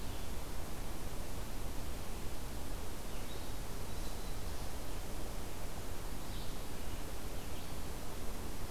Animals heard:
forest ambience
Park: Hubbard Brook Experimental Forest